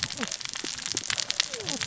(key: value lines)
label: biophony, cascading saw
recorder: SoundTrap 600 or HydroMoth